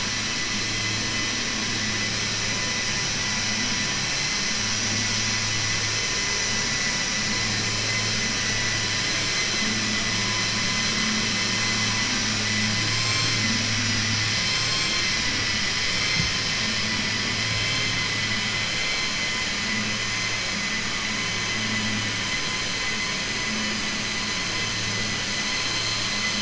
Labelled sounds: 9.0	9.6	vessel noise, 1.8 to 4.4 kHz

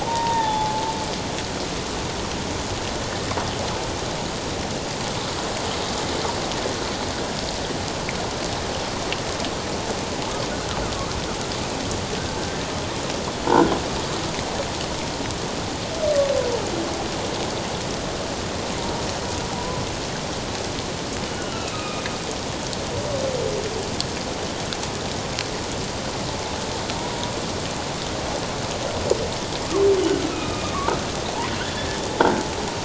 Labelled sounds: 0.0	0.9	humpback whale, 0.78 to 3.8 kHz
19.6	19.8	humpback whale, 0.94 to 1.1 kHz
21.3	22.0	humpback whale, 1.2 to 3.0 kHz
30.3	30.7	humpback whale, 1.2 to 2.6 kHz

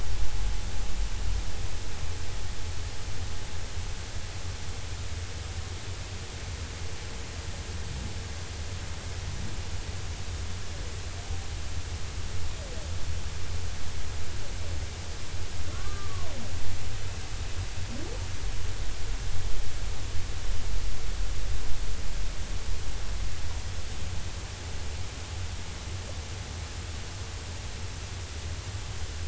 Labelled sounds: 15.7	16.3	humpback whale, 0.93 to 1.7 kHz

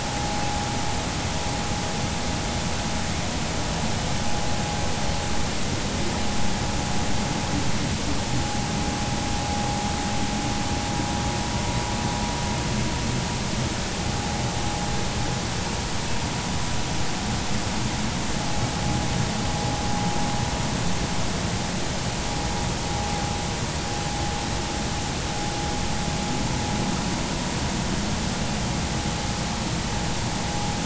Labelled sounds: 0.1	0.4	vessel noise, 0.80 to 0.86 kHz

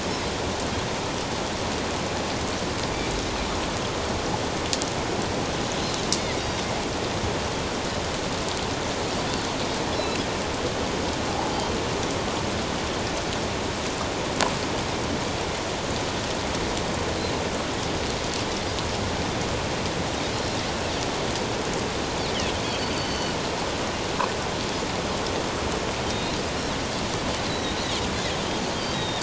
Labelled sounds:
6.4	6.6	Pacific white-sided dolphin, 3.7 to 3.8 kHz
10.0	10.2	Pacific white-sided dolphin, 2.6 to 2.8 kHz
22.6	23.4	Pacific white-sided dolphin, 2.8 to 4.7 kHz
27.5	27.8	Pacific white-sided dolphin, 3.7 to 4.1 kHz
28.1	29.2	Pacific white-sided dolphin, 3.1 to 3.8 kHz

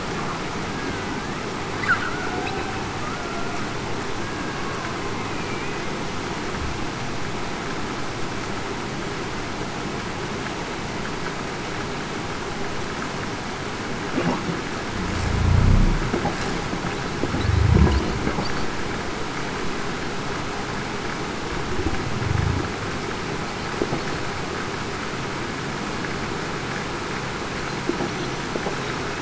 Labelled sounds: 0.7	1.1	killer whale, Bigg's (transient), 1.5 to 1.7 kHz
3.0	3.5	killer whale, Bigg's (transient), 1.2 to 1.4 kHz
5.2	5.8	killer whale, Bigg's (transient), 2.3 to 2.6 kHz

